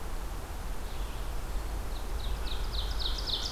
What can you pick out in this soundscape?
Ovenbird